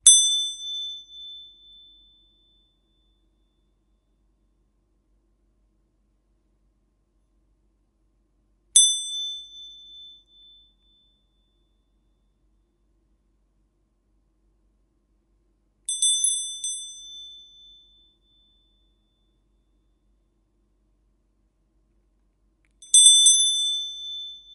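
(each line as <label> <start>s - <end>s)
A bell is ringing. 0.0s - 1.2s
A bell rings. 8.5s - 9.6s
A bell rings. 15.9s - 17.2s
Bells are ringing. 22.8s - 24.4s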